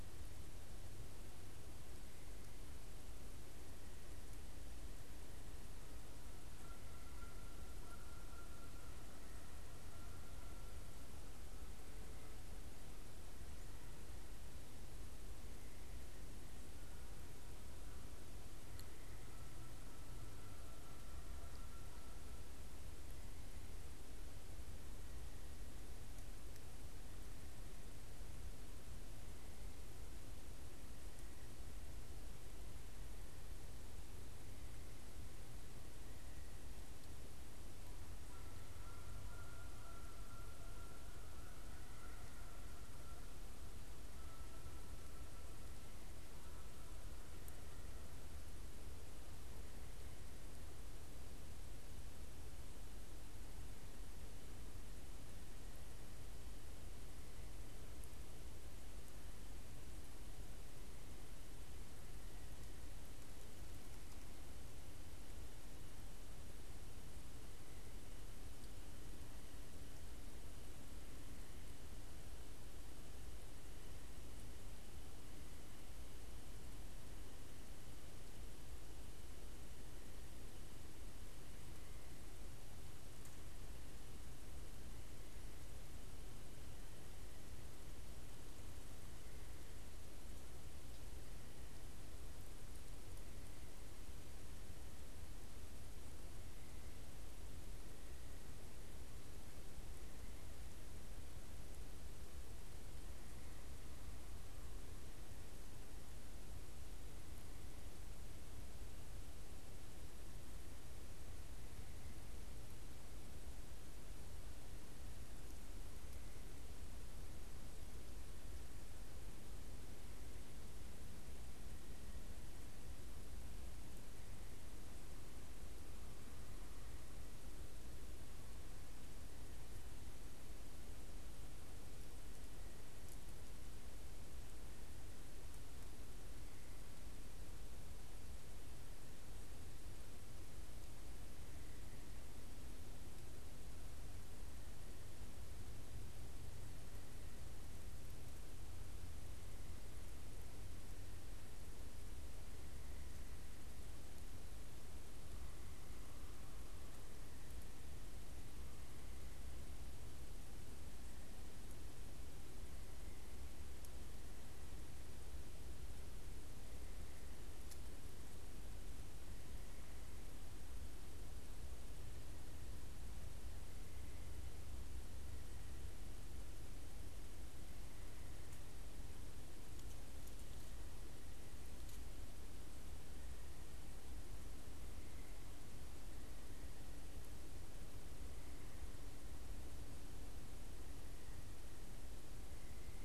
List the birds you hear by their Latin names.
Branta canadensis